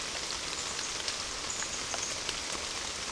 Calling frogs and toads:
none

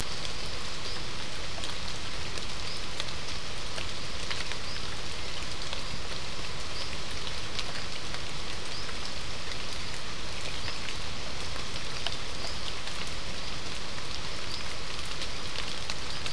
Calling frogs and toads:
none

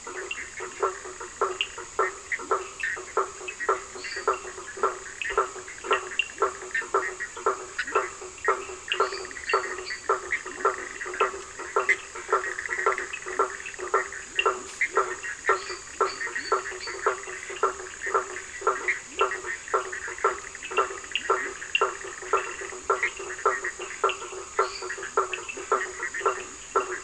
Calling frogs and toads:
Cochran's lime tree frog (Sphaenorhynchus surdus), blacksmith tree frog (Boana faber), lesser tree frog (Dendropsophus minutus)

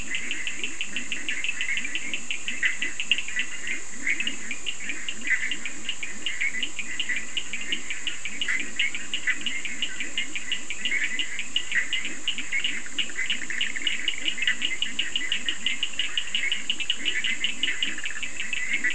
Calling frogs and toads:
Bischoff's tree frog (Boana bischoffi), Leptodactylus latrans, Cochran's lime tree frog (Sphaenorhynchus surdus)

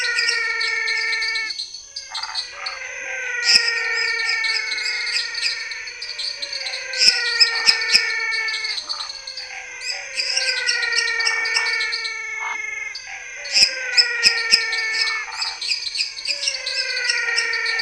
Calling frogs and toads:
Chaco tree frog (Boana raniceps), lesser tree frog (Dendropsophus minutus), dwarf tree frog (Dendropsophus nanus), pepper frog (Leptodactylus labyrinthicus), menwig frog (Physalaemus albonotatus), waxy monkey tree frog (Phyllomedusa sauvagii), Scinax fuscovarius

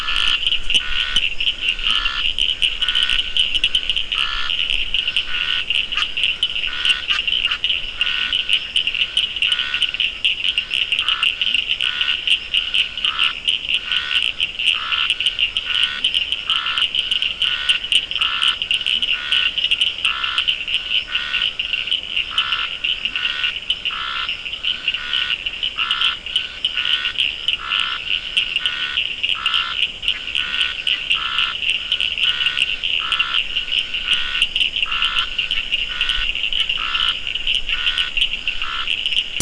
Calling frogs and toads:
Scinax perereca, Cochran's lime tree frog (Sphaenorhynchus surdus), Leptodactylus latrans

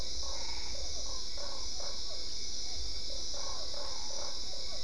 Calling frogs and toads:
Usina tree frog (Boana lundii), Physalaemus cuvieri, Boana albopunctata

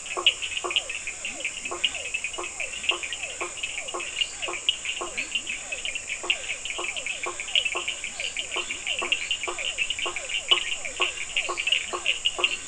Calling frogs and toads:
blacksmith tree frog (Boana faber), Physalaemus cuvieri, Cochran's lime tree frog (Sphaenorhynchus surdus), Leptodactylus latrans, lesser tree frog (Dendropsophus minutus)

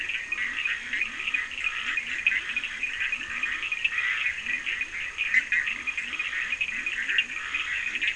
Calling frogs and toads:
Bischoff's tree frog (Boana bischoffi), Leptodactylus latrans, Scinax perereca, Cochran's lime tree frog (Sphaenorhynchus surdus)

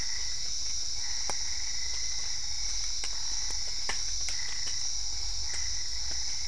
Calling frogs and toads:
Boana albopunctata

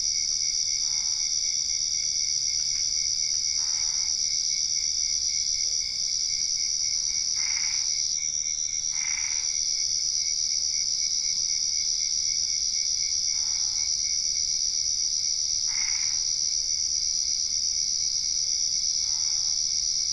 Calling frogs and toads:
Boana albopunctata

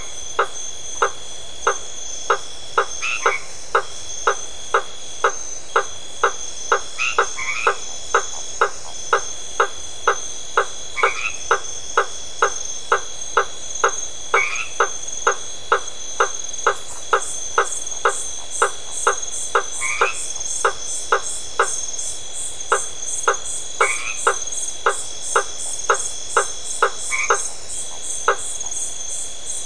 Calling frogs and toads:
blacksmith tree frog (Boana faber), white-edged tree frog (Boana albomarginata)

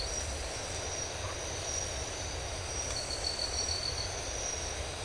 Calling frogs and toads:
none

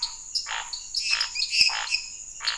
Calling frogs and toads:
dwarf tree frog (Dendropsophus nanus), Scinax fuscovarius, lesser tree frog (Dendropsophus minutus)

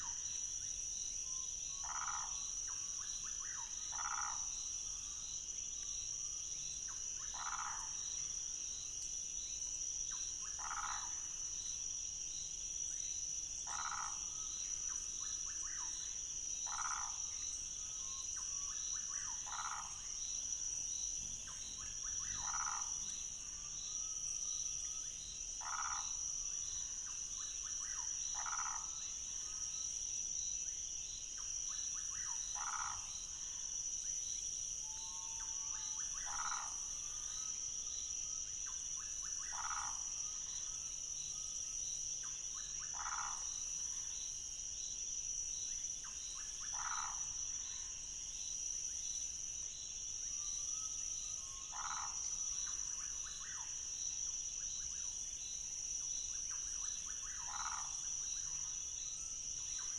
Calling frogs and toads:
waxy monkey tree frog (Phyllomedusa sauvagii), rufous frog (Leptodactylus fuscus)

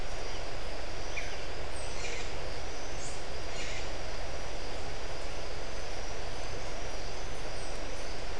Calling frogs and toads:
none

